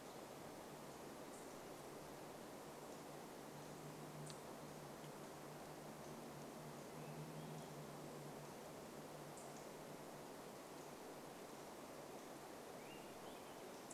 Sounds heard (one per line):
unidentified bird chip note
Swainson's Thrush song